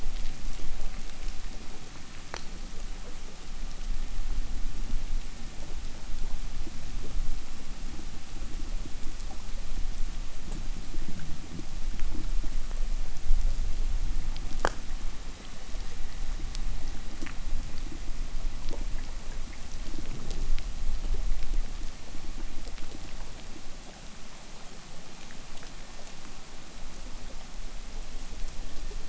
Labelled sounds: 24.3	29.0	vessel noise, 1.4 to 2.3 kHz

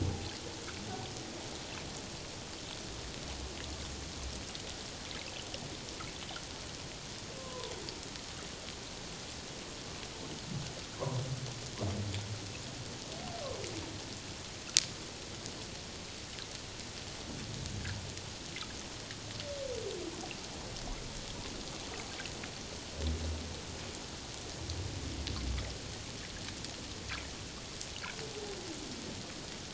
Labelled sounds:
7.4	7.7	humpback whale, 0.88 to 1.2 kHz
11.0	11.2	humpback whale, 0.91 to 1.2 kHz

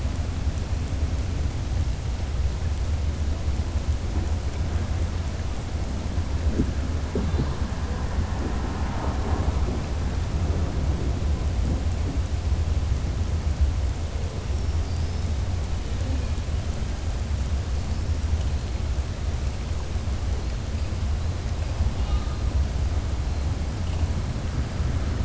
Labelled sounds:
14.8	15.3	killer whale, southern resident, 4.6 to 6.2 kHz
21.9	22.3	killer whale, southern resident, 0.81 to 4.5 kHz

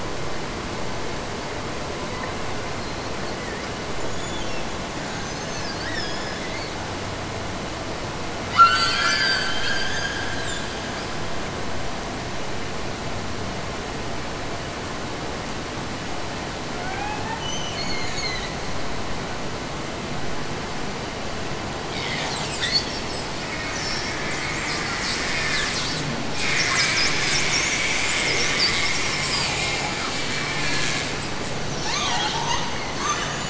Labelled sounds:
8.5	10.5	killer whale, Bigg's (transient), Gulf of Alaska transient, 1.2 to 8.0 kHz
16.7	18.5	killer whale, Bigg's (transient), Gulf of Alaska transient, 0.44 to 7.0 kHz

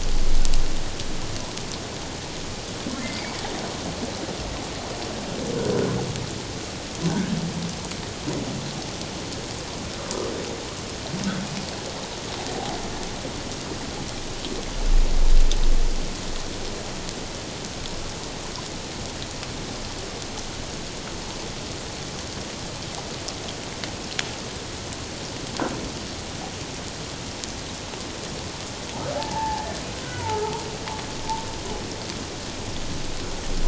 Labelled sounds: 29.2	30.6	humpback whale, 0.78 to 1.4 kHz

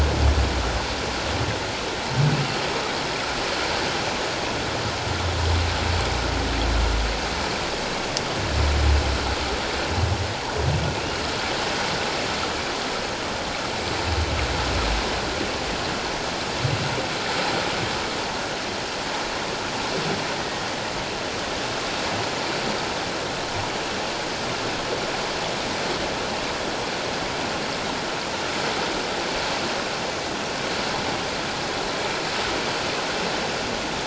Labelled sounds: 11.0	11.2	humpback whale, 2.4 to 2.9 kHz
20.4	20.6	humpback whale, 1.8 to 1.9 kHz

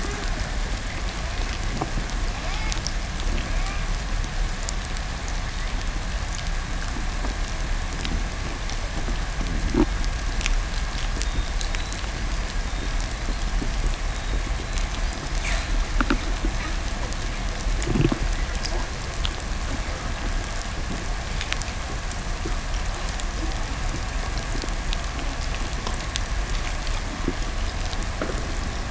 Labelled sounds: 11.0	15.8	killer whale, 0.56 to 8.0 kHz

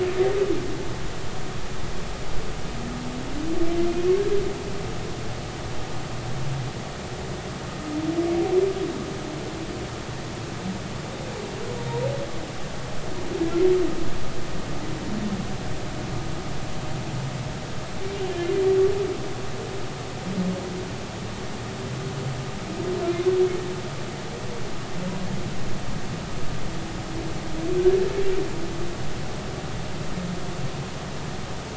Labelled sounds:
18.3	18.5	humpback whale, 1.7 to 1.8 kHz

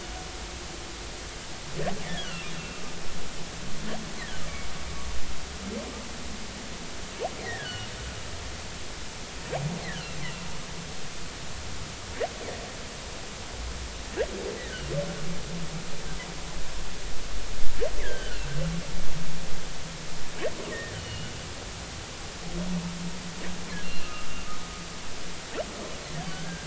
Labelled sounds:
2.0	2.8	humpback whale, 1.3 to 3.6 kHz
7.4	7.9	humpback whale, 1.3 to 3.1 kHz
9.8	10.1	humpback whale, 1.3 to 2.2 kHz
18.0	18.4	humpback whale, 1.4 to 3.5 kHz
20.7	21.3	humpback whale, 1.7 to 3.1 kHz
23.8	24.3	humpback whale, 1.2 to 2.8 kHz
26.3	26.6	humpback whale, 1.4 to 1.7 kHz

